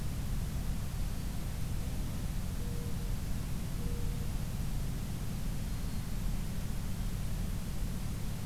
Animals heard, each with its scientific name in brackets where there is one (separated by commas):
Mourning Dove (Zenaida macroura), Black-throated Green Warbler (Setophaga virens)